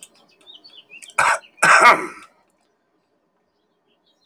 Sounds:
Throat clearing